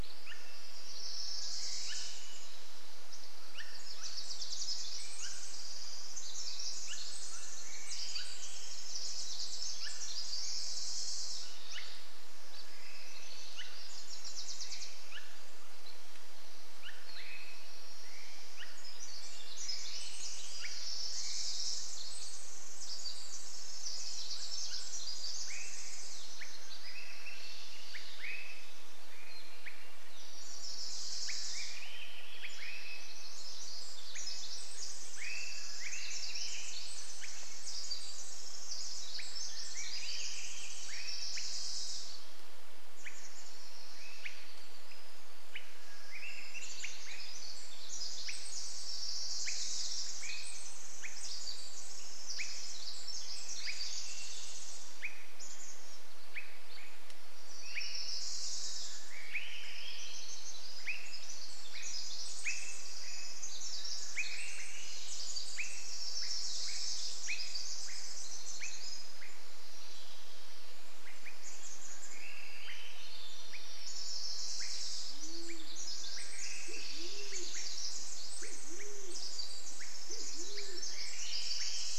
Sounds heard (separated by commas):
Chestnut-backed Chickadee call, Wilson's Warbler song, Swainson's Thrush song, Pacific Wren song, Swainson's Thrush call, Band-tailed Pigeon call, Band-tailed Pigeon song, Downy Woodpecker call